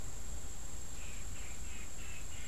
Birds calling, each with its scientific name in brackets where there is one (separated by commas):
unidentified bird